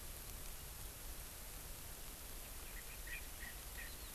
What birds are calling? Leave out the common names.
Pternistis erckelii